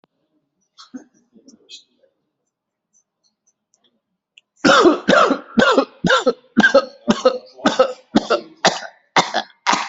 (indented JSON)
{
  "expert_labels": [
    {
      "quality": "good",
      "cough_type": "dry",
      "dyspnea": false,
      "wheezing": false,
      "stridor": false,
      "choking": false,
      "congestion": false,
      "nothing": true,
      "diagnosis": "lower respiratory tract infection",
      "severity": "mild"
    }
  ],
  "age": 49,
  "gender": "male",
  "respiratory_condition": true,
  "fever_muscle_pain": true,
  "status": "COVID-19"
}